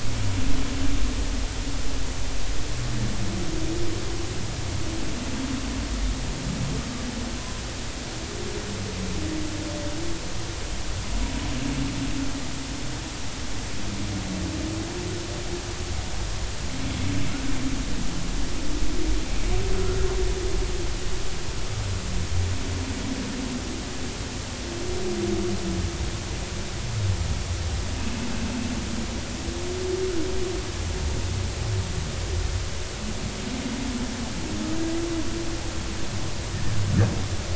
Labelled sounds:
17.3	17.5	humpback whale, 1.3 to 1.6 kHz

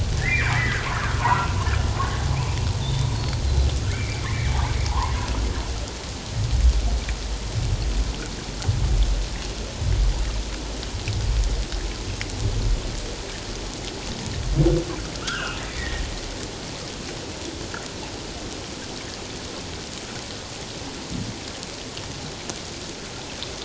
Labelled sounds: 0.2	0.8	humpback whale, 1.4 to 2.5 kHz
1.2	1.5	humpback whale, 0.84 to 1.2 kHz
2.2	3.4	humpback whale, 0.78 to 4.5 kHz
3.9	4.5	humpback whale, 1.7 to 2.4 kHz
4.9	5.1	humpback whale, 0.78 to 1.2 kHz
15.2	16.0	humpback whale, 1.0 to 3.4 kHz

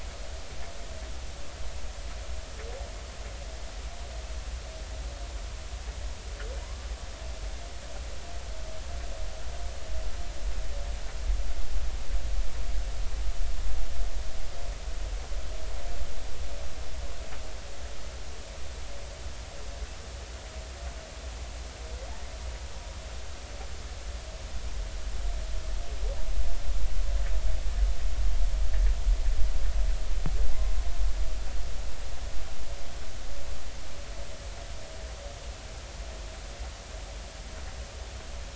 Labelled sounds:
6.6	6.9	humpback whale, 0.93 to 1.2 kHz

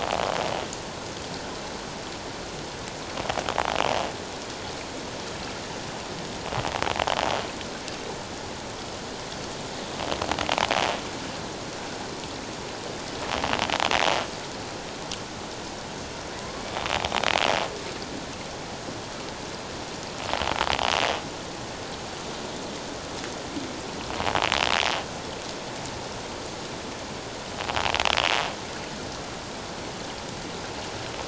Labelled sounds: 16.4	16.6	killer whale, 0.97 to 1.2 kHz

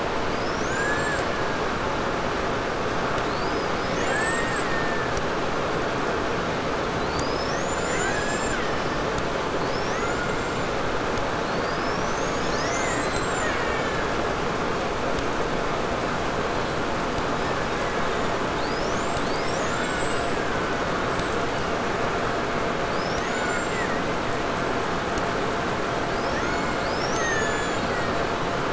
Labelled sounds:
0.2	1.8	killer whale, Bigg's (transient), 0.84 to 8.0 kHz
3.1	5.3	killer whale, Bigg's (transient), 0.55 to 8.0 kHz
6.9	9.2	killer whale, Bigg's (transient), 0.68 to 8.0 kHz
9.5	10.8	killer whale, Bigg's (transient), call T01, 0.67 to 8.0 kHz
11.3	14.4	killer whale, Bigg's (transient), call T08, 0.94 to 8.0 kHz
17.3	21.5	killer whale, 0.70 to 8.0 kHz
22.4	24.8	killer whale, Bigg's (transient), 0.82 to 8.0 kHz
25.7	28.7	killer whale, Bigg's (transient), 0.94 to 8.0 kHz

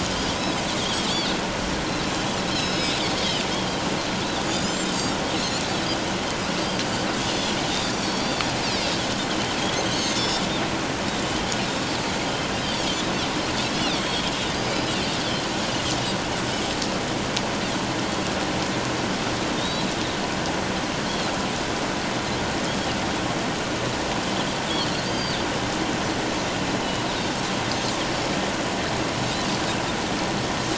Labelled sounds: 0.0	1.1	Pacific white-sided dolphin, 3.0 to 3.5 kHz
2.4	3.4	Pacific white-sided dolphin, 2.9 to 6.8 kHz
5.4	5.6	Pacific white-sided dolphin, 3.9 to 4.5 kHz
7.8	8.3	Pacific white-sided dolphin, 4.6 to 5.6 kHz
9.9	10.4	Pacific white-sided dolphin, 3.3 to 7.2 kHz
12.7	13.0	Pacific white-sided dolphin, 3.1 to 3.5 kHz
13.7	14.7	Pacific white-sided dolphin, 3.2 to 4.9 kHz
19.6	19.9	Pacific white-sided dolphin, 3.6 to 4.2 kHz
25.0	25.4	Pacific white-sided dolphin, 4.5 to 4.8 kHz

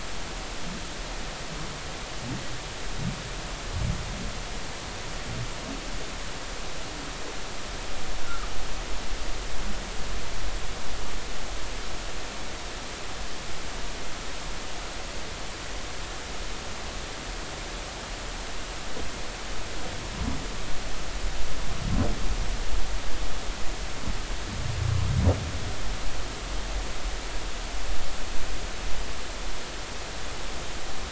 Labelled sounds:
9.2	9.5	humpback whale, 1.2 to 1.5 kHz

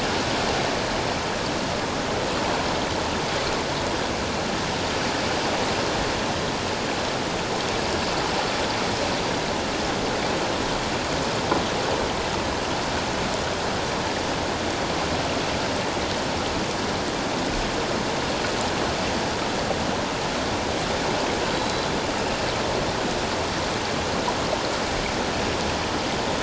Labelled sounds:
21.5	21.9	killer whale, Bigg's (transient), 3.9 to 4.1 kHz

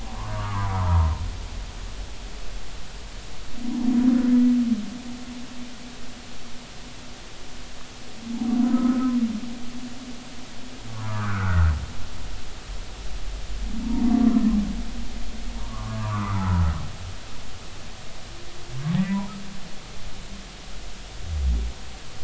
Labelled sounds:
0.0	1.2	humpback whale, 0.80 to 1.5 kHz
8.6	9.1	humpback whale, 0.93 to 1.4 kHz
10.9	11.7	humpback whale, 0.86 to 1.8 kHz
13.8	14.1	humpback whale, 0.86 to 0.99 kHz
15.5	16.6	humpback whale, 0.80 to 1.6 kHz
19.0	19.2	humpback whale, 1.8 to 2.0 kHz

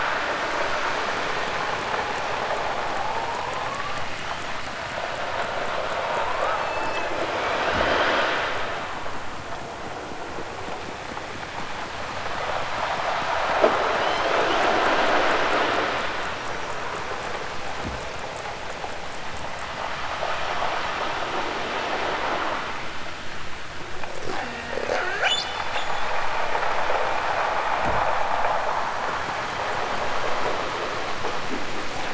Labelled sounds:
3.5	4.6	killer whale, southern Alaska resident, 2.8 to 7.2 kHz
6.5	8.3	killer whale, southern Alaska resident, 1.9 to 8.0 kHz
13.9	14.8	killer whale, southern Alaska resident, 2.5 to 8.0 kHz
24.2	25.5	killer whale, southern Alaska resident, 0.23 to 8.0 kHz

